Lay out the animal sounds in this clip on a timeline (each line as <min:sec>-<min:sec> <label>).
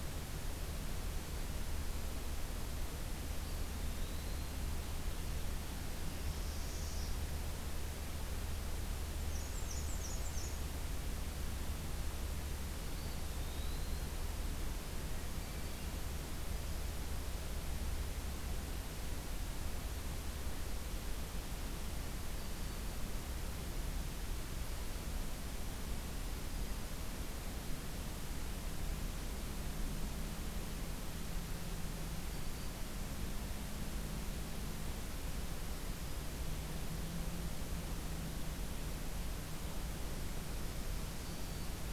0:03.3-0:04.6 Eastern Wood-Pewee (Contopus virens)
0:05.8-0:07.3 Northern Parula (Setophaga americana)
0:09.2-0:10.6 Black-and-white Warbler (Mniotilta varia)
0:12.8-0:14.1 Eastern Wood-Pewee (Contopus virens)
0:15.3-0:16.0 Black-throated Green Warbler (Setophaga virens)
0:22.2-0:23.0 Black-throated Green Warbler (Setophaga virens)